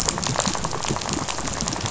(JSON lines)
{"label": "biophony, rattle", "recorder": "SoundTrap 500"}